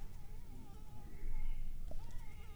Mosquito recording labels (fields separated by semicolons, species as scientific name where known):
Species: Anopheles arabiensis; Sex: female; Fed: unfed; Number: one; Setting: cup